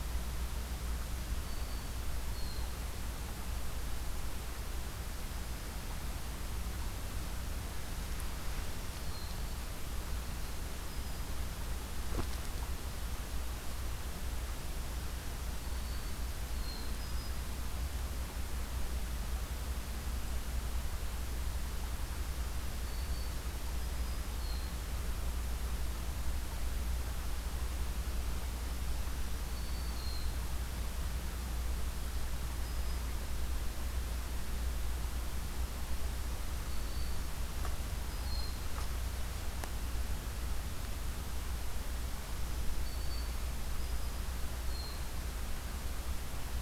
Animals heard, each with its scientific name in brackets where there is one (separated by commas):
Hermit Thrush (Catharus guttatus), Black-throated Green Warbler (Setophaga virens)